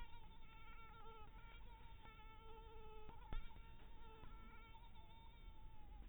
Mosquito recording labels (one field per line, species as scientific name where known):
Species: mosquito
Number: one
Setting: cup